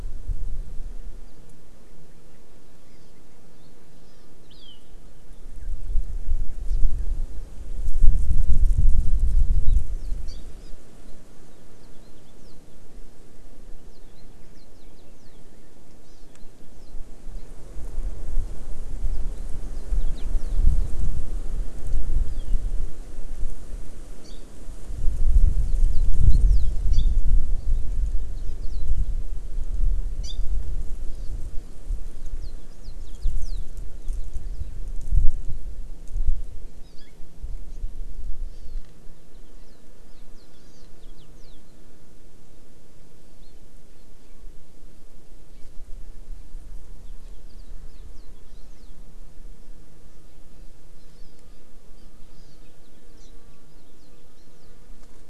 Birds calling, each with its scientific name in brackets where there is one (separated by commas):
House Finch (Haemorhous mexicanus), Hawaii Amakihi (Chlorodrepanis virens)